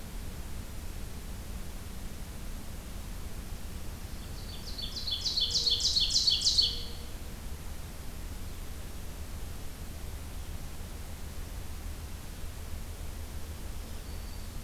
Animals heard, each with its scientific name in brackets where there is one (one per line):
Ovenbird (Seiurus aurocapilla)
Mourning Dove (Zenaida macroura)
Black-throated Green Warbler (Setophaga virens)